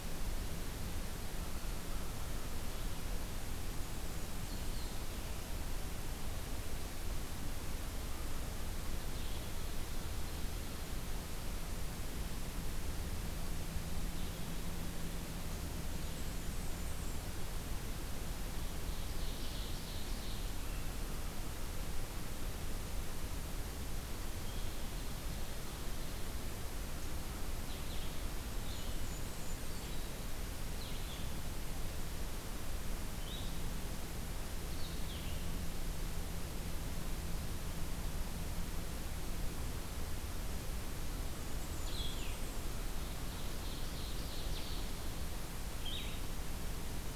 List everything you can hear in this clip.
Blackburnian Warbler, Ovenbird, Blue-headed Vireo